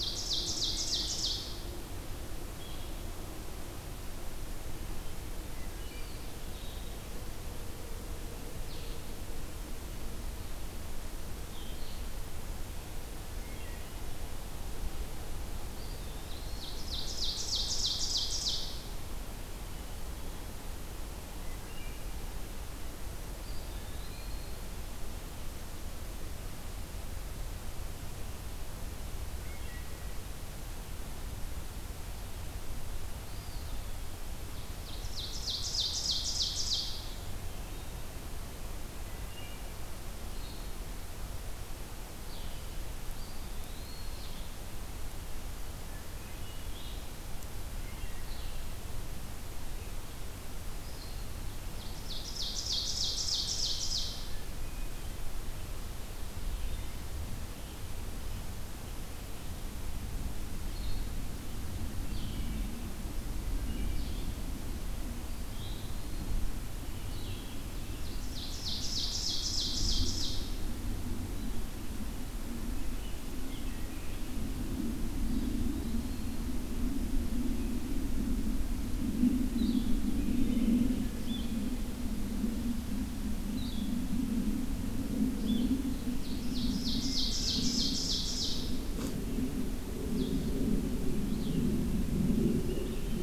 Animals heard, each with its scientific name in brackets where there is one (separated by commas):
Blue-headed Vireo (Vireo solitarius), Eastern Wood-Pewee (Contopus virens), Ovenbird (Seiurus aurocapilla), Hermit Thrush (Catharus guttatus)